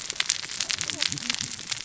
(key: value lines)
label: biophony, cascading saw
recorder: SoundTrap 600 or HydroMoth